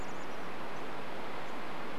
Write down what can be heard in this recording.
Chestnut-backed Chickadee call